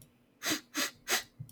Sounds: Sniff